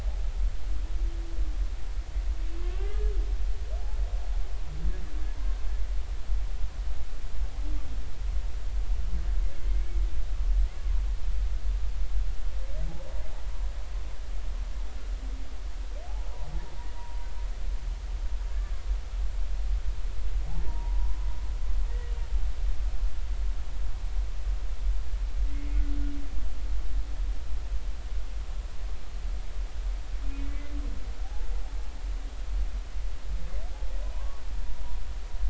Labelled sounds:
2.9	3.1	humpback whale, 1.6 to 1.8 kHz
18.5	18.8	humpback whale, 1.6 to 1.8 kHz
20.7	21.3	humpback whale, 0.83 to 1.1 kHz
25.5	25.8	humpback whale, 2.1 to 2.2 kHz
31.2	31.5	humpback whale, 0.80 to 0.93 kHz
34.1	34.4	humpback whale, 0.93 to 1.2 kHz

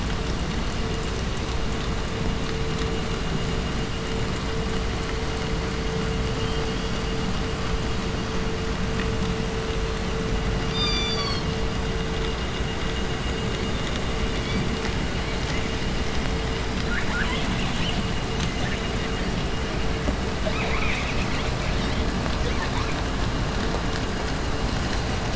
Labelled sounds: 9.6	10.3	killer whale, 2.2 to 4.7 kHz
10.6	11.6	killer whale, 0.80 to 8.0 kHz
14.4	14.7	killer whale, 1.8 to 6.2 kHz
15.1	16.6	killer whale, 3.0 to 5.1 kHz
16.9	18.1	killer whale, southern resident, call S10, 0.52 to 4.2 kHz
18.3	18.9	killer whale, 1.1 to 7.1 kHz
20.3	23.1	killer whale, southern resident, call S10, 0.52 to 5.7 kHz
21.6	22.0	killer whale, 1.3 to 6.4 kHz

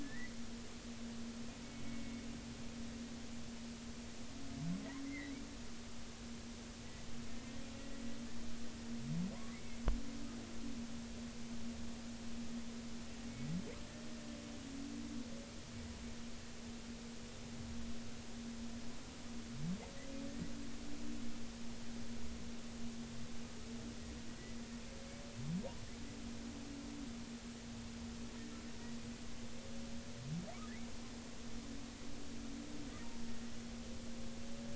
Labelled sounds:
0.0	0.3	humpback whale, 1.7 to 2.0 kHz
5.0	5.3	humpback whale, 1.9 to 2.2 kHz
7.7	8.0	humpback whale, 1.9 to 2.0 kHz
9.5	9.8	humpback whale, 2.0 to 2.3 kHz

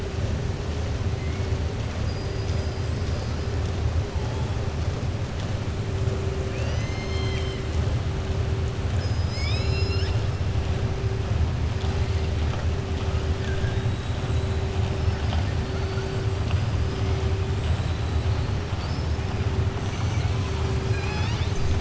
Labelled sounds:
2.0	2.8	killer whale, southern resident, 4.7 to 6.8 kHz
6.4	7.6	killer whale, southern resident, 1.4 to 7.4 kHz
17.5	18.2	killer whale, southern resident, 7.2 to 8.0 kHz
20.8	21.7	killer whale, southern resident, 0.85 to 6.9 kHz

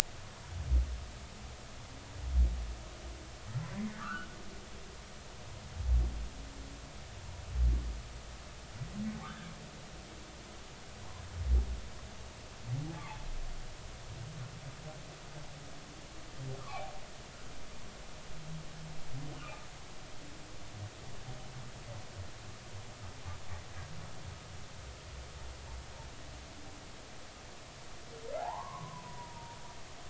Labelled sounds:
3.9	4.3	humpback whale, 1.1 to 1.6 kHz
9.2	9.4	humpback whale, 3.4 to 3.7 kHz
16.6	16.9	humpback whale, 0.99 to 2.6 kHz
28.4	29.6	humpback whale, 0.80 to 1.2 kHz

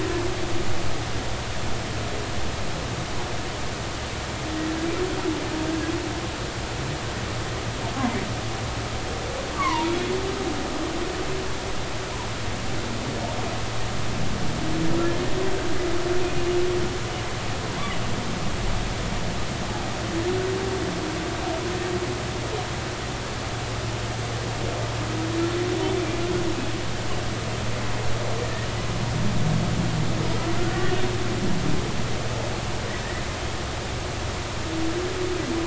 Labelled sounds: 9.5	10.1	humpback whale, 0.86 to 3.5 kHz

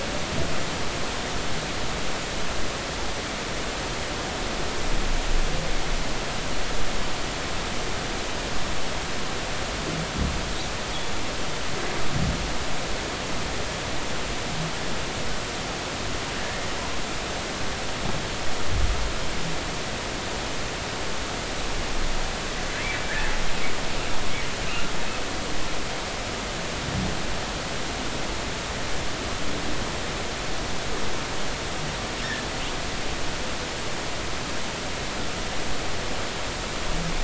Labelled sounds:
16.4	16.6	humpback whale, 1.7 to 1.9 kHz

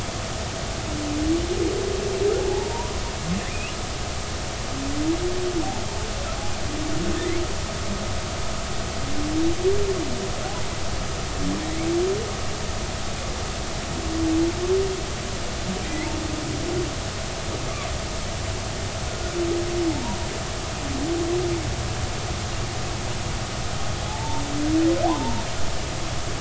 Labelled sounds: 2.5	2.9	humpback whale, 0.80 to 1.1 kHz
3.5	3.7	humpback whale, 2.3 to 3.0 kHz
15.8	16.1	humpback whale, 1.8 to 2.3 kHz
19.1	20.2	humpback whale, 0.83 to 1.5 kHz
24.1	24.4	humpback whale, 0.80 to 0.96 kHz
25.0	25.4	humpback whale, 0.80 to 1.1 kHz

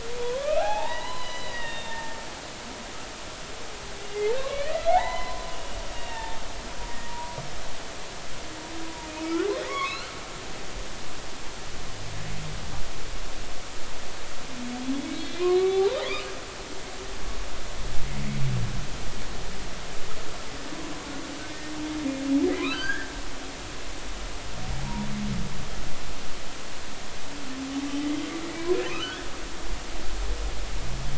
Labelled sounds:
0.2	2.2	humpback whale, 0.80 to 4.1 kHz
4.3	6.4	humpback whale, 0.80 to 4.1 kHz
7.1	7.4	humpback whale, 0.90 to 1.0 kHz
8.8	10.5	humpback whale, 0.83 to 4.3 kHz
15.2	16.0	humpback whale, 0.80 to 3.9 kHz
22.6	23.1	humpback whale, 0.96 to 3.2 kHz
24.8	25.1	humpback whale, 0.80 to 0.99 kHz
28.9	29.3	humpback whale, 1.2 to 3.1 kHz

